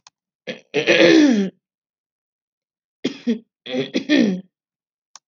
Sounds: Throat clearing